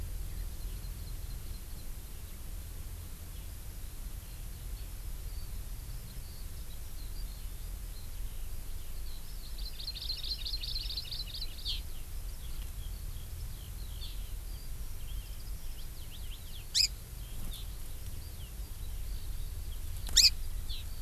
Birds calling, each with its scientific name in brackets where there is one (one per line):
Hawaii Amakihi (Chlorodrepanis virens)
Eurasian Skylark (Alauda arvensis)